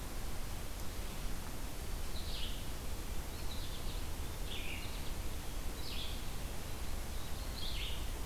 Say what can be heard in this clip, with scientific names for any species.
Vireo olivaceus